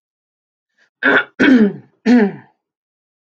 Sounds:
Throat clearing